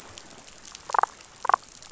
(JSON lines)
{"label": "biophony, damselfish", "recorder": "SoundTrap 500"}